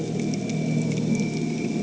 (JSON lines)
{"label": "anthrophony, boat engine", "recorder": "HydroMoth"}